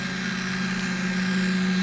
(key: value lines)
label: anthrophony, boat engine
recorder: SoundTrap 500